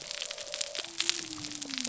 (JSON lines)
{"label": "biophony", "recorder": "SoundTrap 300"}